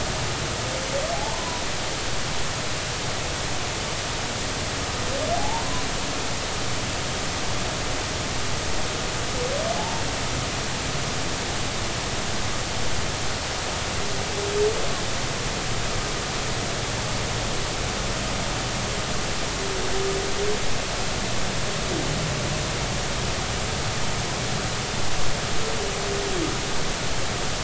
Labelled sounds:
1.1	1.6	humpback whale, 0.80 to 1.1 kHz
5.4	5.9	humpback whale, 0.80 to 1.1 kHz

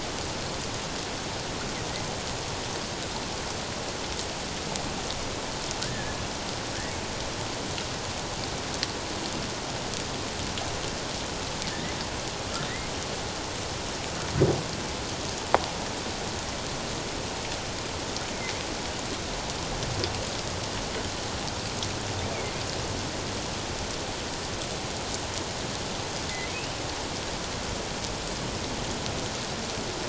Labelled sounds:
5.8	6.2	humpback whale, 1.4 to 1.9 kHz
22.3	22.6	humpback whale, 2.0 to 2.5 kHz

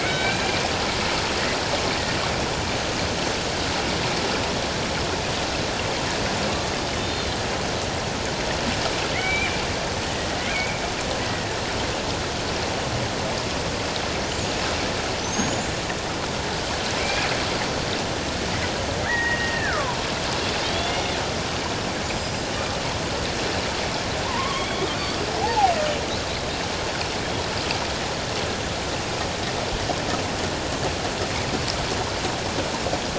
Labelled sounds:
0.0	0.4	killer whale, Bigg's (transient), 1.4 to 3.9 kHz
6.8	7.4	killer whale, Bigg's (transient), 2.9 to 4.3 kHz
9.1	9.5	killer whale, Bigg's (transient), 1.9 to 2.5 kHz
10.1	10.8	killer whale, Bigg's (transient), 1.9 to 2.5 kHz
11.2	11.5	killer whale, Bigg's (transient), 1.8 to 2.0 kHz
15.2	15.7	killer whale, Bigg's (transient), 5.7 to 7.2 kHz
17.0	17.3	killer whale, Bigg's (transient), 2.1 to 2.6 kHz
19.0	20.0	killer whale, Bigg's (transient), 0.91 to 2.9 kHz
20.6	21.2	killer whale, Bigg's (transient), 2.1 to 3.7 kHz
22.1	22.4	killer whale, Bigg's (transient), 4.9 to 5.1 kHz
24.3	24.9	killer whale, Bigg's (transient), 0.91 to 3.5 kHz
25.4	25.7	killer whale, Bigg's (transient), 0.78 to 0.97 kHz

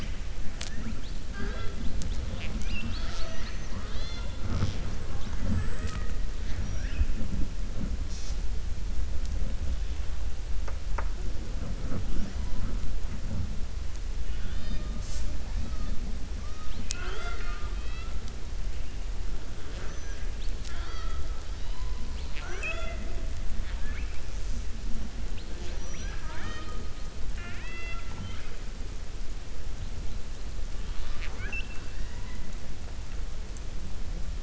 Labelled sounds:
14.2	14.9	killer whale, 1.4 to 4.9 kHz
16.4	18.1	killer whale, 0.41 to 6.4 kHz
23.5	24.2	killer whale, 0.93 to 3.6 kHz
27.2	28.5	killer whale, 0.20 to 4.8 kHz

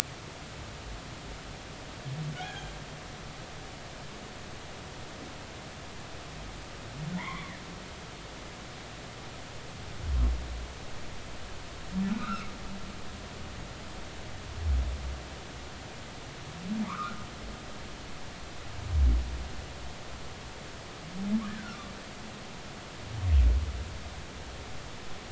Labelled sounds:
2.4	2.7	humpback whale, 0.80 to 3.4 kHz
7.2	7.6	humpback whale, 0.86 to 2.4 kHz
12.1	12.5	humpback whale, 1.2 to 1.6 kHz
16.9	17.2	humpback whale, 0.93 to 1.5 kHz
21.5	21.8	humpback whale, 1.3 to 1.8 kHz

